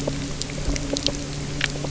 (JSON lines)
{"label": "anthrophony, boat engine", "recorder": "SoundTrap 300"}